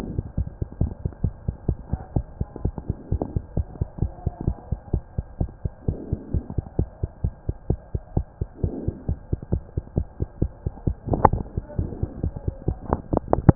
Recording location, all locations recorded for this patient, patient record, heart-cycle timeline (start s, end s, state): mitral valve (MV)
aortic valve (AV)+pulmonary valve (PV)+tricuspid valve (TV)+mitral valve (MV)
#Age: Child
#Sex: Male
#Height: 106.0 cm
#Weight: 16.7 kg
#Pregnancy status: False
#Murmur: Absent
#Murmur locations: nan
#Most audible location: nan
#Systolic murmur timing: nan
#Systolic murmur shape: nan
#Systolic murmur grading: nan
#Systolic murmur pitch: nan
#Systolic murmur quality: nan
#Diastolic murmur timing: nan
#Diastolic murmur shape: nan
#Diastolic murmur grading: nan
#Diastolic murmur pitch: nan
#Diastolic murmur quality: nan
#Outcome: Normal
#Campaign: 2015 screening campaign
0.00	0.35	unannotated
0.35	0.48	S1
0.48	0.59	systole
0.59	0.68	S2
0.68	0.80	diastole
0.80	0.91	S1
0.91	1.02	systole
1.02	1.12	S2
1.12	1.22	diastole
1.22	1.34	S1
1.34	1.45	systole
1.45	1.56	S2
1.56	1.65	diastole
1.65	1.78	S1
1.78	1.90	systole
1.90	2.02	S2
2.02	2.13	diastole
2.13	2.24	S1
2.24	2.37	systole
2.37	2.48	S2
2.48	2.62	diastole
2.62	2.74	S1
2.74	2.87	systole
2.87	2.96	S2
2.96	3.08	diastole
3.08	3.22	S1
3.22	3.33	systole
3.33	3.44	S2
3.44	3.54	diastole
3.54	3.66	S1
3.66	3.78	systole
3.78	3.88	S2
3.88	3.99	diastole
3.99	4.12	S1
4.12	4.23	systole
4.23	4.34	S2
4.34	4.45	diastole
4.45	4.56	S1
4.56	4.69	systole
4.69	4.80	S2
4.80	4.91	diastole
4.91	5.04	S1
5.04	5.15	systole
5.15	5.26	S2
5.26	5.37	diastole
5.37	5.50	S1
5.50	5.62	systole
5.62	5.72	S2
5.72	5.85	diastole
5.85	5.98	S1
5.98	6.09	systole
6.09	6.20	S2
6.20	6.31	diastole
6.31	6.44	S1
6.44	6.55	systole
6.55	6.64	S2
6.64	6.76	diastole
6.76	6.88	S1
6.88	7.00	systole
7.00	7.10	S2
7.10	7.22	diastole
7.22	7.32	S1
7.32	7.46	systole
7.46	7.56	S2
7.56	7.67	diastole
7.67	7.80	S1
7.80	7.91	systole
7.91	8.02	S2
8.02	8.12	diastole
8.12	8.26	S1
8.26	8.38	systole
8.38	8.48	S2
8.48	8.62	diastole
8.62	8.74	S1
8.74	8.84	systole
8.84	8.96	S2
8.96	9.05	diastole
9.05	9.17	S1
9.17	9.29	systole
9.29	9.42	S2
9.42	9.50	diastole
9.50	9.61	S1
9.61	9.73	systole
9.73	9.84	S2
9.84	9.93	diastole
9.93	10.08	S1
10.08	10.18	systole
10.18	10.28	S2
10.28	10.39	diastole
10.39	10.50	S1
10.50	13.55	unannotated